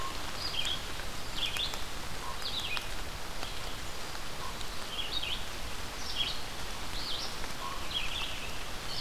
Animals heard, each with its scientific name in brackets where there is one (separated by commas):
Blackburnian Warbler (Setophaga fusca), Red-eyed Vireo (Vireo olivaceus), Common Raven (Corvus corax)